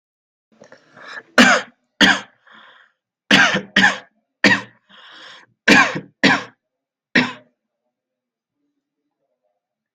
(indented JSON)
{
  "expert_labels": [
    {
      "quality": "good",
      "cough_type": "dry",
      "dyspnea": false,
      "wheezing": false,
      "stridor": false,
      "choking": false,
      "congestion": false,
      "nothing": true,
      "diagnosis": "upper respiratory tract infection",
      "severity": "mild"
    }
  ],
  "age": 26,
  "gender": "male",
  "respiratory_condition": true,
  "fever_muscle_pain": false,
  "status": "healthy"
}